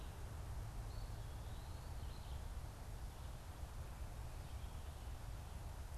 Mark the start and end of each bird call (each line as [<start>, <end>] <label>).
[0.69, 2.00] Eastern Wood-Pewee (Contopus virens)
[2.00, 5.97] Red-eyed Vireo (Vireo olivaceus)